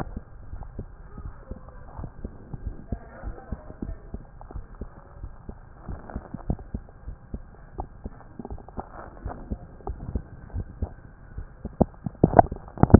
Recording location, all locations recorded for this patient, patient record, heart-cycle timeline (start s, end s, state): mitral valve (MV)
aortic valve (AV)+pulmonary valve (PV)+tricuspid valve (TV)+mitral valve (MV)
#Age: Child
#Sex: Male
#Height: 108.0 cm
#Weight: 18.0 kg
#Pregnancy status: False
#Murmur: Absent
#Murmur locations: nan
#Most audible location: nan
#Systolic murmur timing: nan
#Systolic murmur shape: nan
#Systolic murmur grading: nan
#Systolic murmur pitch: nan
#Systolic murmur quality: nan
#Diastolic murmur timing: nan
#Diastolic murmur shape: nan
#Diastolic murmur grading: nan
#Diastolic murmur pitch: nan
#Diastolic murmur quality: nan
#Outcome: Normal
#Campaign: 2015 screening campaign
0.00	0.49	unannotated
0.49	0.64	S1
0.64	0.76	systole
0.76	0.88	S2
0.88	1.16	diastole
1.16	1.32	S1
1.32	1.49	systole
1.49	1.61	S2
1.61	1.96	diastole
1.96	2.10	S1
2.10	2.22	systole
2.22	2.34	S2
2.34	2.62	diastole
2.62	2.76	S1
2.76	2.90	systole
2.90	3.00	S2
3.00	3.24	diastole
3.24	3.36	S1
3.36	3.50	systole
3.50	3.62	S2
3.62	3.86	diastole
3.86	3.98	S1
3.98	4.10	systole
4.10	4.24	S2
4.24	4.50	diastole
4.50	4.64	S1
4.64	4.78	systole
4.78	4.90	S2
4.90	5.20	diastole
5.20	5.32	S1
5.32	5.45	systole
5.45	5.60	S2
5.60	5.88	diastole
5.88	6.00	S1
6.00	6.12	systole
6.12	6.22	S2
6.22	6.46	diastole
6.46	6.60	S1
6.60	6.72	systole
6.72	6.84	S2
6.84	7.04	diastole
7.04	7.18	S1
7.18	7.31	systole
7.31	7.45	S2
7.45	7.76	diastole
7.76	7.88	S1
7.88	8.01	systole
8.01	8.18	S2
8.18	8.46	diastole
8.46	8.58	S1
8.58	8.75	systole
8.75	8.88	S2
8.88	9.22	diastole
9.22	9.32	S1
9.32	9.48	systole
9.48	9.62	S2
9.62	9.84	diastole
9.84	10.00	S1
10.00	10.12	systole
10.12	10.26	S2
10.26	10.52	diastole
10.52	10.68	S1
10.68	10.80	systole
10.80	10.90	S2
10.90	12.99	unannotated